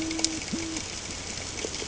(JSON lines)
{"label": "ambient", "recorder": "HydroMoth"}